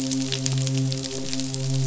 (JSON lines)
{"label": "biophony, midshipman", "recorder": "SoundTrap 500"}